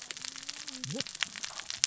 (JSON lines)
{"label": "biophony, cascading saw", "recorder": "SoundTrap 600 or HydroMoth"}